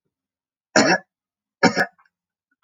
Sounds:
Cough